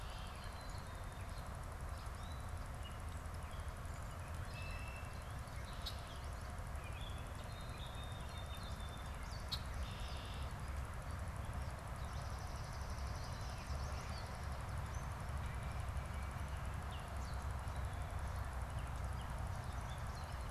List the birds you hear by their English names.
Gray Catbird, Red-winged Blackbird, Yellow Warbler, Song Sparrow, Swamp Sparrow